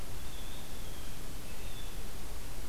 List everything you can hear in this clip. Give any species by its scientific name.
Cyanocitta cristata